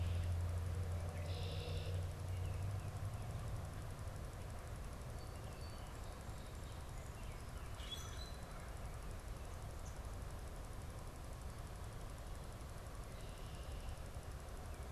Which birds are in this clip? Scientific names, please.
Agelaius phoeniceus, Quiscalus quiscula